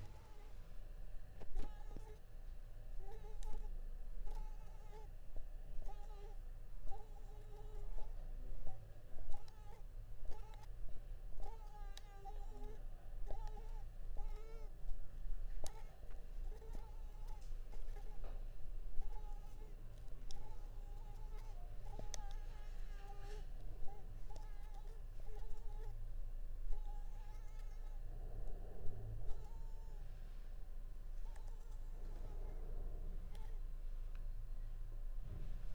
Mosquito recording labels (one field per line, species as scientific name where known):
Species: Culex pipiens complex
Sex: female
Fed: unfed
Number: one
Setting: cup